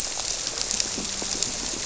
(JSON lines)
{"label": "biophony, grouper", "recorder": "SoundTrap 300"}